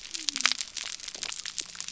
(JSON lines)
{"label": "biophony", "recorder": "SoundTrap 300"}